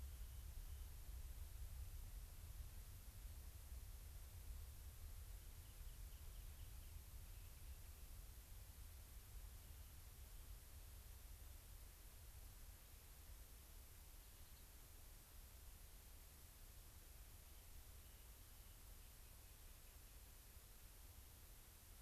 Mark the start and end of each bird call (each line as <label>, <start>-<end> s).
Rock Wren (Salpinctes obsoletus), 0.0-0.9 s
Rock Wren (Salpinctes obsoletus), 5.6-8.1 s
unidentified bird, 14.1-14.6 s
Rock Wren (Salpinctes obsoletus), 17.5-20.1 s